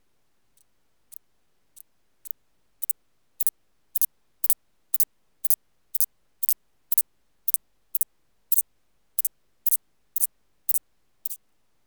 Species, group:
Thyreonotus corsicus, Orthoptera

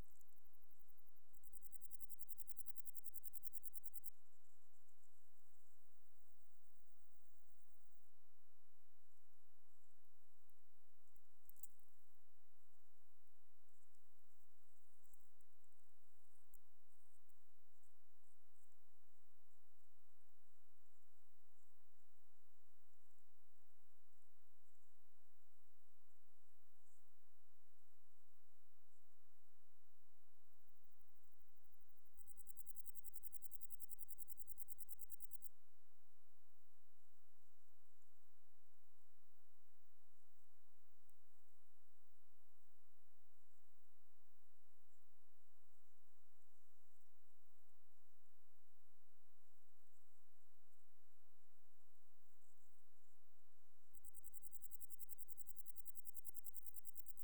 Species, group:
Vichetia oblongicollis, Orthoptera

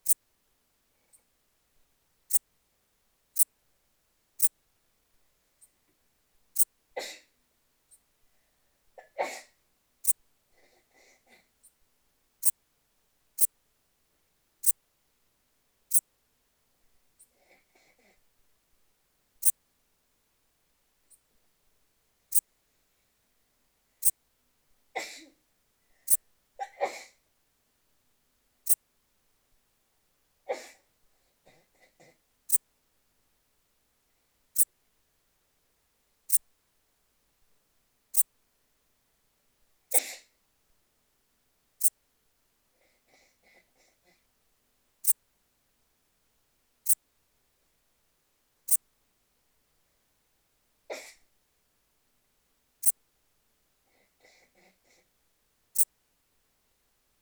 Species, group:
Eupholidoptera megastyla, Orthoptera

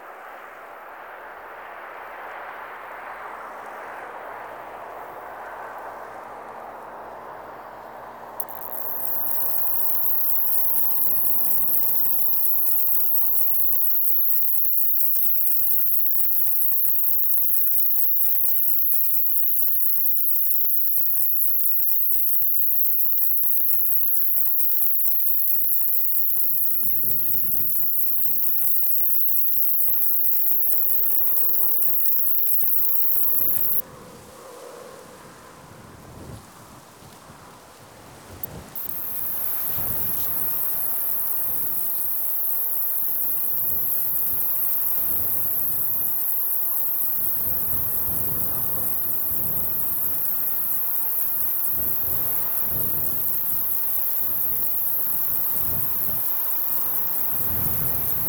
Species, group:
Pycnogaster jugicola, Orthoptera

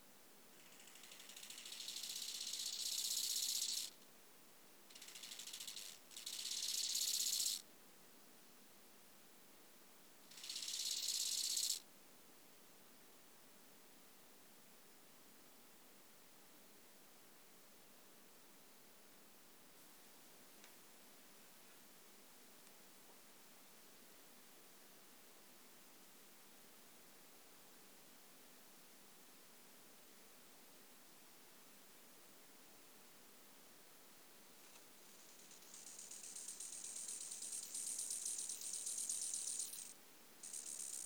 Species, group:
Chorthippus biguttulus, Orthoptera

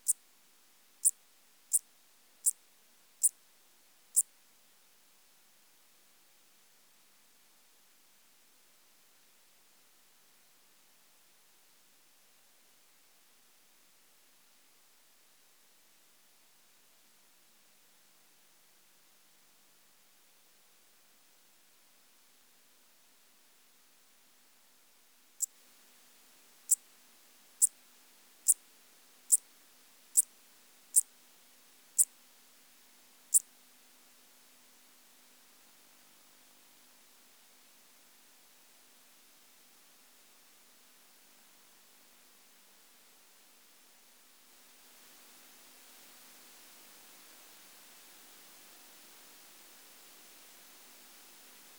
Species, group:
Eupholidoptera schmidti, Orthoptera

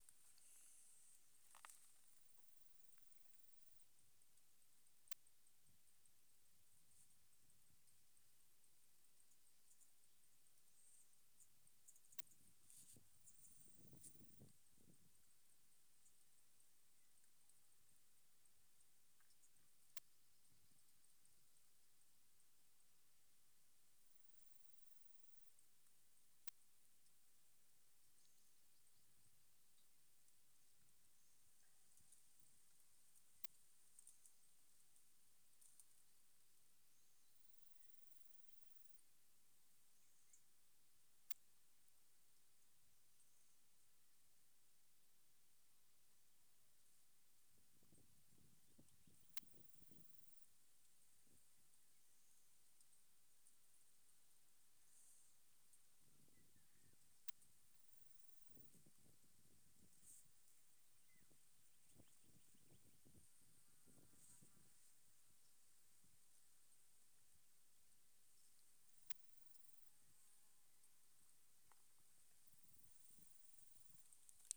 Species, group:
Poecilimon jonicus, Orthoptera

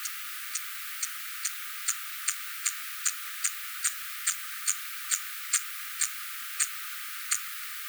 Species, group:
Eupholidoptera smyrnensis, Orthoptera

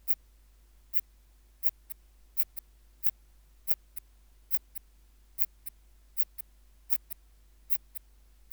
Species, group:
Phaneroptera falcata, Orthoptera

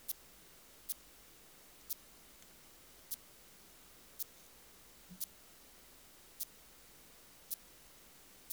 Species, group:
Yersinella raymondii, Orthoptera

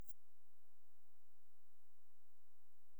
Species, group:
Tessellana lagrecai, Orthoptera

